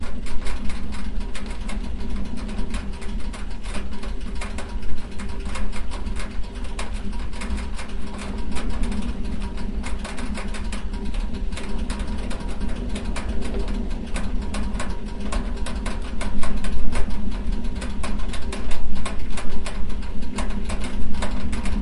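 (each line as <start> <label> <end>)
0.0 Wood stove heating up, producing crackling and popping sounds. 21.8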